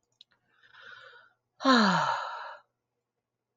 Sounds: Sigh